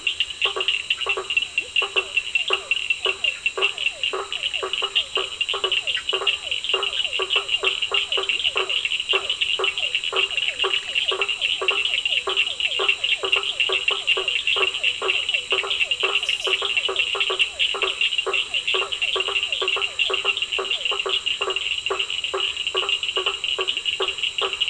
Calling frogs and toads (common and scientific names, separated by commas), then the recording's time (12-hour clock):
blacksmith tree frog (Boana faber), Cochran's lime tree frog (Sphaenorhynchus surdus), Bischoff's tree frog (Boana bischoffi), Leptodactylus latrans, Physalaemus cuvieri, Scinax perereca
8:30pm